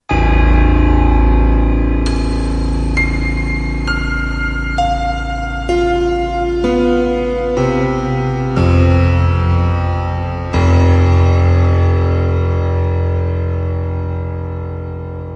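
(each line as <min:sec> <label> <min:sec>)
0:00.0 Deep piano notes followed by high notes descending in pitch. 0:15.4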